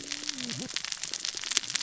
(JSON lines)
{"label": "biophony, cascading saw", "recorder": "SoundTrap 600 or HydroMoth"}